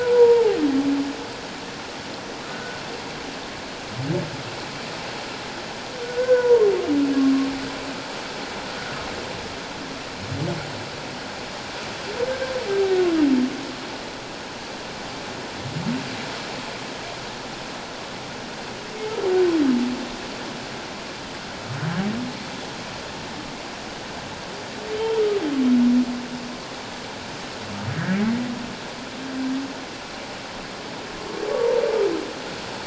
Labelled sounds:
0.0	0.6	humpback whale, 0.78 to 1.0 kHz
2.5	2.8	humpback whale, 1.4 to 1.6 kHz
6.0	6.6	humpback whale, 0.88 to 1.6 kHz
24.9	25.2	humpback whale, 3.0 to 3.3 kHz
27.9	28.2	humpback whale, 1.5 to 2.0 kHz

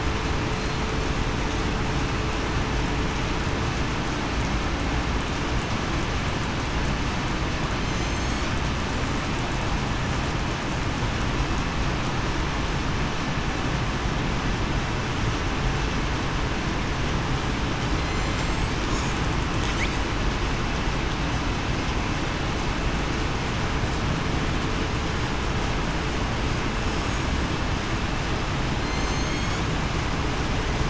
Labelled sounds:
7.9	8.4	killer whale, southern resident, 4.2 to 7.7 kHz
18.0	18.7	killer whale, southern resident, 4.1 to 6.6 kHz
28.8	29.6	killer whale, southern resident, 4.1 to 4.5 kHz

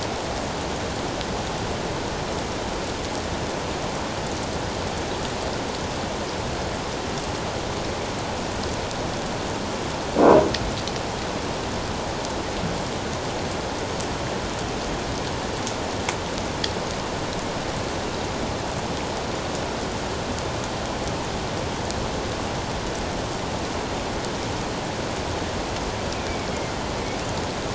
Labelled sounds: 26.1	26.5	killer whale, northern resident, A clan, AA subclan, 2.2 to 2.6 kHz

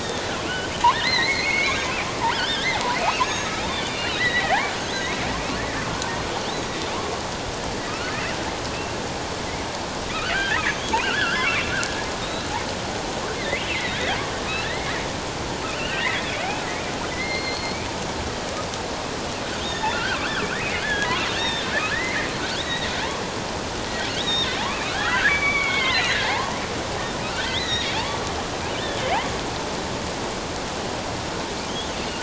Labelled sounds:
0.5	1.8	killer whale, offshore, 1.6 to 4.6 kHz
2.3	5.2	killer whale, offshore, 1.3 to 6.7 kHz
7.9	8.1	killer whale, offshore, 1.2 to 1.6 kHz
10.1	11.7	killer whale, offshore, 1.2 to 6.7 kHz
13.4	14.9	killer whale, offshore, 1.6 to 4.2 kHz
15.8	16.3	killer whale, offshore, 1.3 to 3.0 kHz
17.1	17.8	killer whale, offshore, 1.9 to 4.5 kHz
19.6	20.2	killer whale, offshore, 1.3 to 3.8 kHz
20.6	22.3	killer whale, offshore, 1.5 to 6.5 kHz
22.6	22.9	killer whale, offshore, 1.8 to 4.0 kHz
24.1	26.5	killer whale, offshore, 0.78 to 4.2 kHz
27.2	28.2	killer whale, offshore, 0.78 to 4.1 kHz
28.7	29.0	killer whale, offshore, 3.4 to 3.7 kHz
31.6	32.0	killer whale, offshore, 6.2 to 6.5 kHz

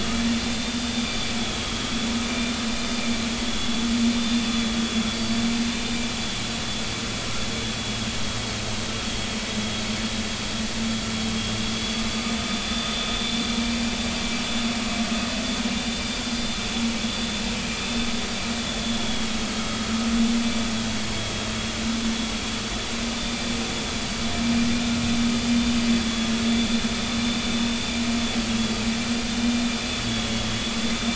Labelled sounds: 0.5	1.3	vessel noise, 3.5 to 4.9 kHz
1.6	1.8	vessel noise, 3.1 to 3.4 kHz
3.5	3.9	vessel noise, 3.4 to 3.5 kHz
4.2	6.0	vessel noise, 3.3 to 4.7 kHz
11.8	13.1	vessel noise, 3.4 to 4.7 kHz
15.8	16.2	vessel noise, 3.5 to 4.8 kHz
18.8	19.3	vessel noise, 3.3 to 3.5 kHz
23.1	23.4	vessel noise, 3.5 to 3.6 kHz
26.0	26.3	vessel noise, 3.2 to 3.5 kHz
28.6	28.8	vessel noise, 4.5 to 4.6 kHz
30.0	31.1	vessel noise, 3.3 to 3.6 kHz

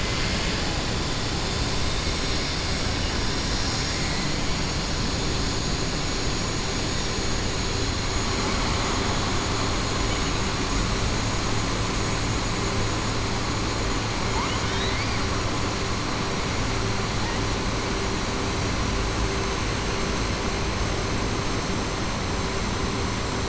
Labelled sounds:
14.3	15.2	killer whale, 0.90 to 4.9 kHz

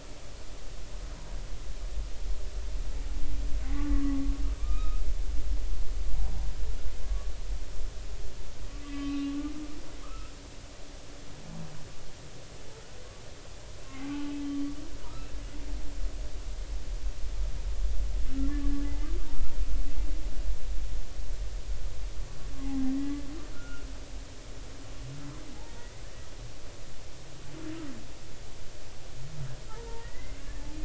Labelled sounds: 3.7	5.0	humpback whale, 1.1 to 2.6 kHz
7.0	7.3	humpback whale, 1.1 to 1.2 kHz
8.8	10.3	humpback whale, 1.0 to 4.0 kHz
15.0	15.3	humpback whale, 1.2 to 1.4 kHz
18.7	18.9	humpback whale, 1.7 to 1.8 kHz
23.0	23.2	humpback whale, 1.9 to 2.0 kHz
23.5	23.9	humpback whale, 1.2 to 1.5 kHz
25.7	25.9	humpback whale, 1.8 to 2.0 kHz
29.7	30.7	humpback whale, 0.80 to 2.2 kHz

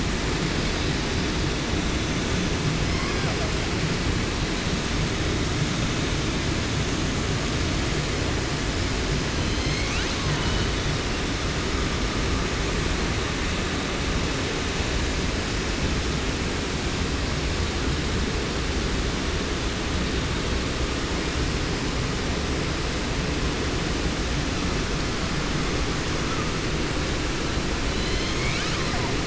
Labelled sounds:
2.7	3.5	killer whale, 0.48 to 6.2 kHz
9.3	11.0	killer whale, 0.48 to 8.0 kHz
27.8	29.1	killer whale, southern resident, 0.47 to 8.0 kHz

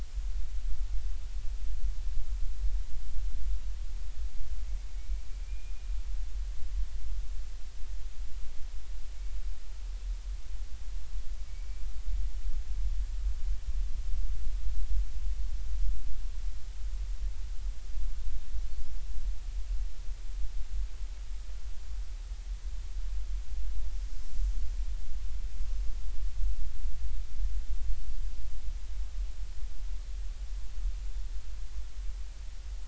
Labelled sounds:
5.4	5.7	killer whale, Bigg's (transient), 2.3 to 2.5 kHz
11.5	11.8	killer whale, Bigg's (transient), 2.2 to 2.4 kHz

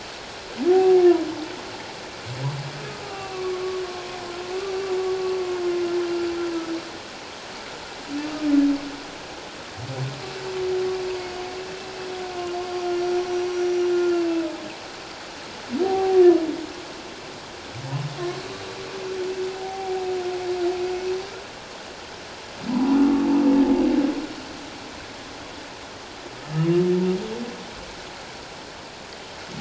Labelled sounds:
0.7	1.0	humpback whale, 0.78 to 0.81 kHz
3.1	3.8	humpback whale, 1.0 to 2.8 kHz
12.5	13.5	humpback whale, 4.6 to 5.9 kHz
13.9	14.5	humpback whale, 1.3 to 2.8 kHz
15.8	16.2	humpback whale, 0.78 to 0.84 kHz
19.5	20.0	humpback whale, 0.78 to 0.84 kHz
22.7	23.0	humpback whale, 0.78 to 1.0 kHz
26.3	26.7	humpback whale, 1.2 to 1.4 kHz

